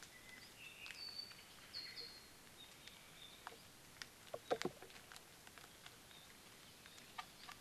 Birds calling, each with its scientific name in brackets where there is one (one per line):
Omao (Myadestes obscurus)
Apapane (Himatione sanguinea)